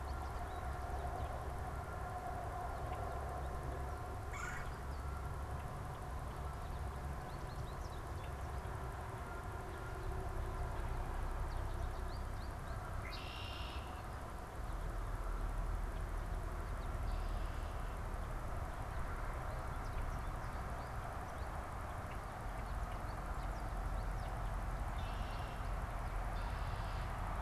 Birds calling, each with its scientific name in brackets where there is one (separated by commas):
American Goldfinch (Spinus tristis), Red-bellied Woodpecker (Melanerpes carolinus), Red-winged Blackbird (Agelaius phoeniceus)